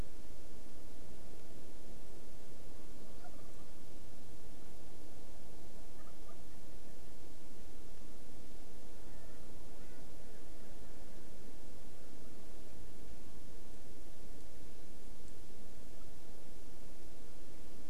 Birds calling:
Erckel's Francolin (Pternistis erckelii)

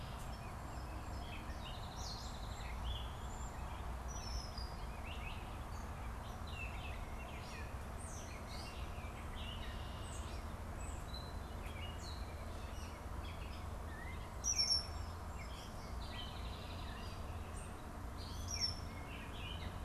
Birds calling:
Song Sparrow (Melospiza melodia), European Starling (Sturnus vulgaris), Gray Catbird (Dumetella carolinensis), Red-winged Blackbird (Agelaius phoeniceus)

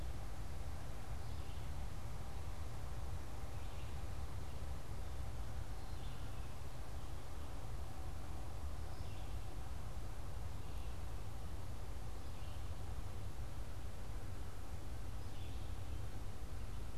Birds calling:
Red-eyed Vireo (Vireo olivaceus)

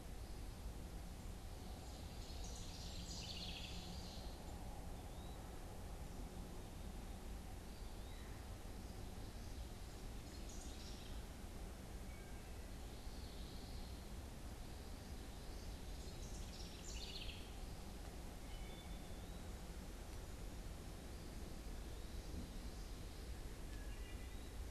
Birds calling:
Eastern Wood-Pewee (Contopus virens), House Wren (Troglodytes aedon), Wood Thrush (Hylocichla mustelina), Common Yellowthroat (Geothlypis trichas), Ovenbird (Seiurus aurocapilla)

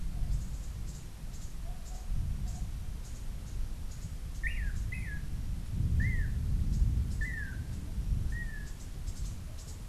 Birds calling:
Long-tailed Manakin (Chiroxiphia linearis), Cabanis's Wren (Cantorchilus modestus)

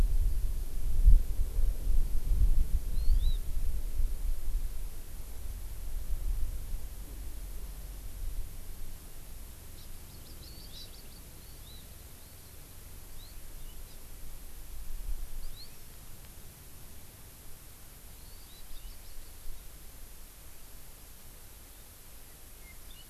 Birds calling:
Hawaii Amakihi (Chlorodrepanis virens)

